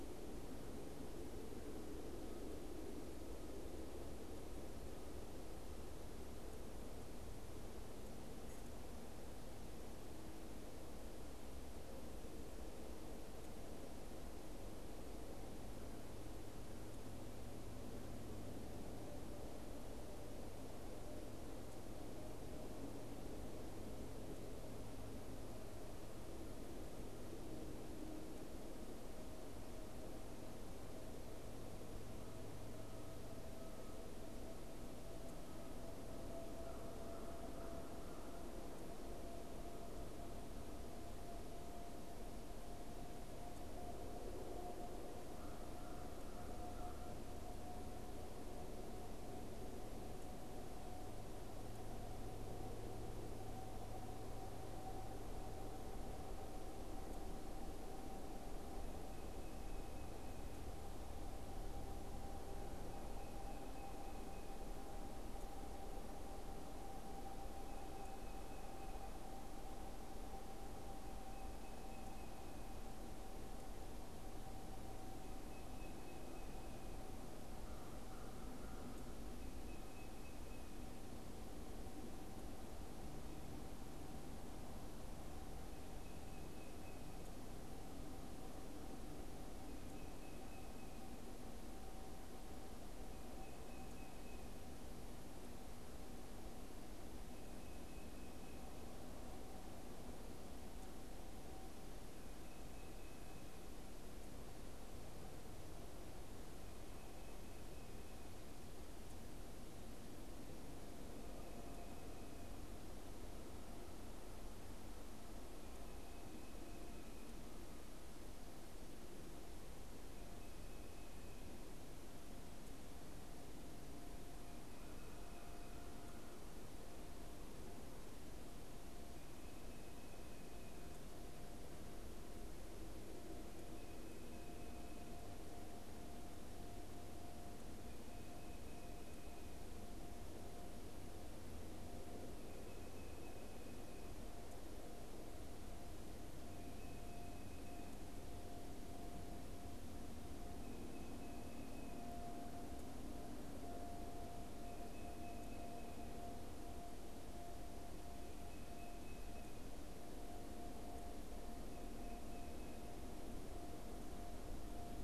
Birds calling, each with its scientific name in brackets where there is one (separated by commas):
American Crow (Corvus brachyrhynchos), Tufted Titmouse (Baeolophus bicolor)